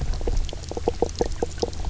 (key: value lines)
label: biophony, knock croak
recorder: SoundTrap 300